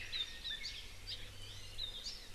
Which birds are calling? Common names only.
Apapane, Hawaii Creeper, Iiwi